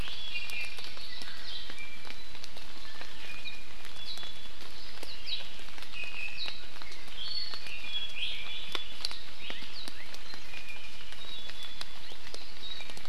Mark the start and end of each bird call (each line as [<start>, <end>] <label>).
[0.00, 2.20] Iiwi (Drepanis coccinea)
[0.10, 1.50] Hawaii Amakihi (Chlorodrepanis virens)
[2.80, 4.60] Iiwi (Drepanis coccinea)
[5.20, 5.40] Iiwi (Drepanis coccinea)
[5.90, 6.50] Iiwi (Drepanis coccinea)
[7.10, 8.80] Iiwi (Drepanis coccinea)
[10.40, 12.00] Iiwi (Drepanis coccinea)